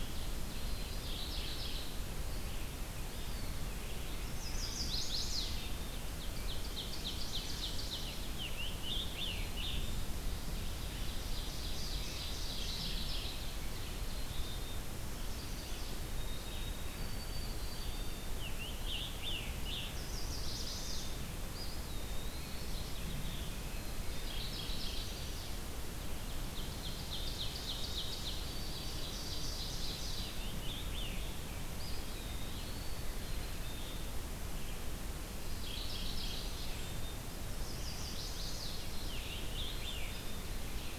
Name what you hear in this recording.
Ovenbird, Red-eyed Vireo, Black-capped Chickadee, Mourning Warbler, Eastern Wood-Pewee, Chestnut-sided Warbler, Scarlet Tanager, White-throated Sparrow